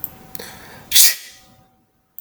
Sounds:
Sneeze